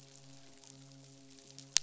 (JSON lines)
{"label": "biophony, midshipman", "recorder": "SoundTrap 500"}